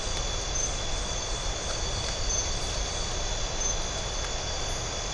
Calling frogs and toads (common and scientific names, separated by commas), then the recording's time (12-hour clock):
none
7:30pm